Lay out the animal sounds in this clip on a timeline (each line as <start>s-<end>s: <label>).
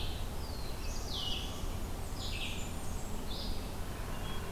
0.0s-4.5s: Red-eyed Vireo (Vireo olivaceus)
0.2s-1.8s: Black-throated Blue Warbler (Setophaga caerulescens)
1.8s-3.5s: Blackburnian Warbler (Setophaga fusca)